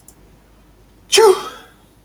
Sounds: Sneeze